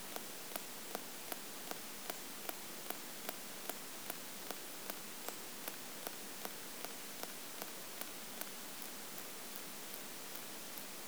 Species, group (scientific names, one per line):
Poecilimon elegans
Orthoptera